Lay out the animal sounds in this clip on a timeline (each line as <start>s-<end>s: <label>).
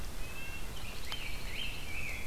0.0s-0.7s: Red-breasted Nuthatch (Sitta canadensis)
0.6s-1.9s: Dark-eyed Junco (Junco hyemalis)
0.8s-2.3s: Rose-breasted Grosbeak (Pheucticus ludovicianus)